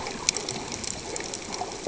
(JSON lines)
{"label": "ambient", "recorder": "HydroMoth"}